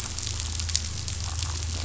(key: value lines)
label: anthrophony, boat engine
recorder: SoundTrap 500